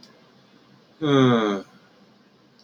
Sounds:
Sigh